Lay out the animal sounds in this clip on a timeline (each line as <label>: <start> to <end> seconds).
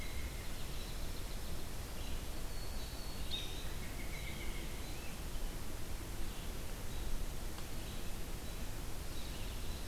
American Robin (Turdus migratorius): 0.0 to 0.6 seconds
Red-eyed Vireo (Vireo olivaceus): 0.0 to 9.5 seconds
Dark-eyed Junco (Junco hyemalis): 0.3 to 1.8 seconds
Black-throated Green Warbler (Setophaga virens): 2.3 to 3.6 seconds
American Robin (Turdus migratorius): 3.2 to 3.5 seconds
American Robin (Turdus migratorius): 3.9 to 4.8 seconds
Dark-eyed Junco (Junco hyemalis): 9.1 to 9.9 seconds